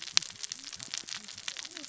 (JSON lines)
{"label": "biophony, cascading saw", "recorder": "SoundTrap 600 or HydroMoth"}